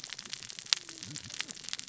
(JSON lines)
{"label": "biophony, cascading saw", "recorder": "SoundTrap 600 or HydroMoth"}